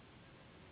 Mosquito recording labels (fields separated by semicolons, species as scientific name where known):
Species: Anopheles gambiae s.s.; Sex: female; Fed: unfed; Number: one; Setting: insect culture